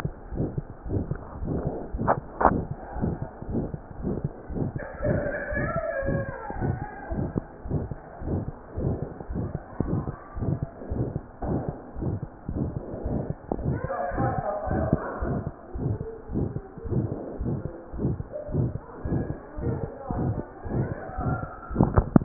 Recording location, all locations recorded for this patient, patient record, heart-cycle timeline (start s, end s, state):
aortic valve (AV)
aortic valve (AV)+pulmonary valve (PV)+tricuspid valve (TV)+mitral valve (MV)
#Age: Child
#Sex: Male
#Height: 108.0 cm
#Weight: 18.6 kg
#Pregnancy status: False
#Murmur: Present
#Murmur locations: aortic valve (AV)+mitral valve (MV)+pulmonary valve (PV)+tricuspid valve (TV)
#Most audible location: aortic valve (AV)
#Systolic murmur timing: Mid-systolic
#Systolic murmur shape: Diamond
#Systolic murmur grading: III/VI or higher
#Systolic murmur pitch: Medium
#Systolic murmur quality: Harsh
#Diastolic murmur timing: nan
#Diastolic murmur shape: nan
#Diastolic murmur grading: nan
#Diastolic murmur pitch: nan
#Diastolic murmur quality: nan
#Outcome: Abnormal
#Campaign: 2015 screening campaign
0.12	0.33	diastole
0.33	0.44	S1
0.44	0.56	systole
0.56	0.66	S2
0.66	0.85	diastole
0.85	0.96	S1
0.96	1.10	systole
1.10	1.20	S2
1.20	1.41	diastole
1.41	1.50	S1
1.50	1.64	systole
1.64	1.74	S2
1.74	1.92	diastole
1.92	1.99	S1
1.99	2.16	systole
2.16	2.26	S2
2.26	2.41	diastole
2.41	2.51	S1
2.51	2.68	systole
2.68	2.78	S2
2.78	2.94	diastole
2.94	3.05	S1
3.05	3.20	systole
3.20	3.30	S2
3.30	3.47	diastole
3.47	3.57	S1
3.57	3.72	systole
3.72	3.82	S2
3.82	3.99	diastole
3.99	4.08	S1
4.08	4.22	systole
4.22	4.32	S2
4.32	4.49	diastole
4.49	4.60	S1
4.60	4.74	systole
4.74	4.84	S2
4.84	5.00	diastole
5.00	5.10	S1
5.10	5.26	systole
5.26	5.34	S2
5.34	5.58	diastole
5.58	5.70	S1
5.70	5.74	systole
5.74	5.84	S2
5.84	6.08	diastole
6.08	6.19	S1
6.19	6.26	systole
6.26	6.36	S2
6.36	6.60	diastole
6.60	6.71	S1
6.71	6.80	systole
6.80	6.90	S2
6.90	7.08	diastole
7.08	7.17	S1
7.17	7.34	systole
7.34	7.44	S2
7.44	7.63	diastole
7.63	7.72	S1
7.72	7.90	systole
7.90	7.98	S2
7.98	8.20	diastole
8.20	8.33	S1
8.33	8.46	systole
8.46	8.56	S2
8.56	8.76	diastole
8.76	8.84	S1
8.84	9.00	systole
9.00	9.10	S2
9.10	9.29	diastole
9.29	9.38	S1
9.38	9.52	systole
9.52	9.62	S2
9.62	9.80	diastole
9.80	9.91	S1
9.91	10.06	systole
10.06	10.18	S2
10.18	10.34	diastole
10.34	10.44	S1
10.44	10.60	systole
10.60	10.70	S2
10.70	10.90	diastole
10.90	11.03	S1
11.03	11.12	systole
11.12	11.22	S2
11.22	11.42	diastole
11.42	11.52	S1
11.52	11.66	systole
11.66	11.76	S2
11.76	11.96	diastole
11.96	12.06	S1
12.06	12.20	systole
12.20	12.30	S2
12.30	12.50	diastole
12.50	12.58	S1
12.58	12.74	systole
12.74	12.84	S2
12.84	13.04	diastole
13.04	13.13	S1
13.13	13.28	systole
13.28	13.38	S2
13.38	13.58	diastole
13.58	13.68	S1
13.68	13.82	systole
13.82	13.92	S2
13.92	14.13	diastole
14.13	14.23	S1
14.23	14.36	systole
14.36	14.46	S2
14.46	14.66	diastole
14.66	14.77	S1
14.77	14.90	systole
14.90	15.00	S2
15.00	15.22	diastole
15.22	15.31	S1
15.31	15.44	systole
15.44	15.54	S2
15.54	15.73	diastole
15.73	15.81	S1
15.81	15.98	systole
15.98	16.08	S2
16.08	16.27	diastole
16.27	16.40	S1
16.40	16.52	systole
16.52	16.64	S2
16.64	16.84	diastole
16.84	16.92	S1
16.92	17.10	systole
17.10	17.18	S2
17.18	17.37	diastole
17.37	17.47	S1
17.47	17.63	systole
17.63	17.71	S2
17.71	17.91	diastole
17.91	18.01	S1
18.01	18.17	systole
18.17	18.28	S2
18.28	18.47	diastole
18.47	18.56	S1
18.56	18.73	systole
18.73	18.82	S2
18.82	19.03	diastole
19.03	19.10	S1
19.10	19.28	systole
19.28	19.40	S2
19.40	19.57	diastole
19.57	19.64	S1
19.64	19.82	systole
19.82	19.89	S2
19.89	20.08	diastole